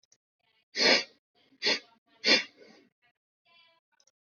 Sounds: Sniff